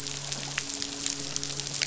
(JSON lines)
{"label": "biophony, midshipman", "recorder": "SoundTrap 500"}